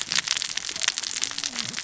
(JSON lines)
{"label": "biophony, cascading saw", "recorder": "SoundTrap 600 or HydroMoth"}